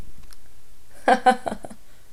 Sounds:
Laughter